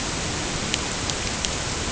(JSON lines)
{"label": "ambient", "recorder": "HydroMoth"}